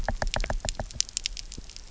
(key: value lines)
label: biophony, knock
recorder: SoundTrap 300